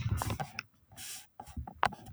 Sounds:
Laughter